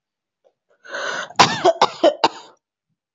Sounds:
Cough